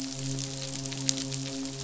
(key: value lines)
label: biophony, midshipman
recorder: SoundTrap 500